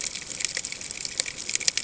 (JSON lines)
{"label": "ambient", "recorder": "HydroMoth"}